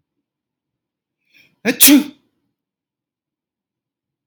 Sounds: Sneeze